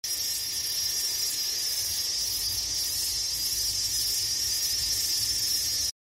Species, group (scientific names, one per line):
Thopha saccata
Cicadidae